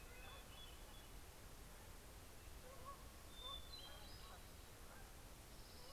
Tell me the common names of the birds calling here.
Hermit Thrush, Canada Goose, Orange-crowned Warbler